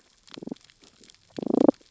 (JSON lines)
{"label": "biophony, damselfish", "recorder": "SoundTrap 600 or HydroMoth"}